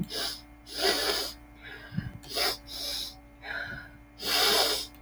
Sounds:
Throat clearing